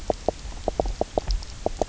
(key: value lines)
label: biophony, knock croak
recorder: SoundTrap 300